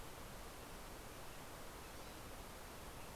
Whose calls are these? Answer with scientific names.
Pipilo chlorurus